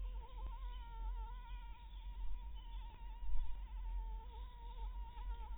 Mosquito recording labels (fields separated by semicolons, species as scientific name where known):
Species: Anopheles maculatus; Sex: female; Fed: blood-fed; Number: one; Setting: cup